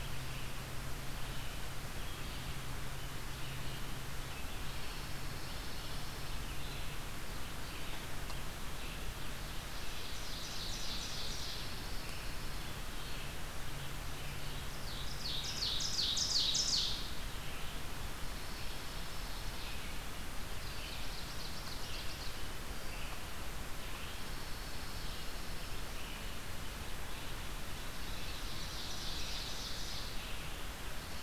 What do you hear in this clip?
Red-eyed Vireo, Pine Warbler, Ovenbird